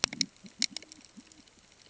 {"label": "ambient", "recorder": "HydroMoth"}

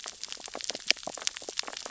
{"label": "biophony, sea urchins (Echinidae)", "recorder": "SoundTrap 600 or HydroMoth"}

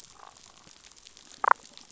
{"label": "biophony, damselfish", "recorder": "SoundTrap 500"}
{"label": "biophony", "recorder": "SoundTrap 500"}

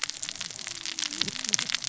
{"label": "biophony, cascading saw", "recorder": "SoundTrap 600 or HydroMoth"}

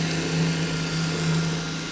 {"label": "anthrophony, boat engine", "recorder": "SoundTrap 500"}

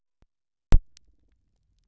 {"label": "biophony", "recorder": "SoundTrap 300"}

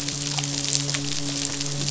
{"label": "biophony, midshipman", "recorder": "SoundTrap 500"}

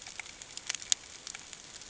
{"label": "ambient", "recorder": "HydroMoth"}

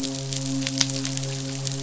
{"label": "biophony, midshipman", "recorder": "SoundTrap 500"}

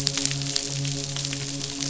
{"label": "biophony, midshipman", "recorder": "SoundTrap 500"}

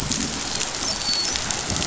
{"label": "biophony, dolphin", "recorder": "SoundTrap 500"}
{"label": "biophony", "recorder": "SoundTrap 500"}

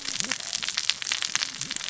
{"label": "biophony, cascading saw", "recorder": "SoundTrap 600 or HydroMoth"}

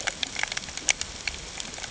{"label": "ambient", "recorder": "HydroMoth"}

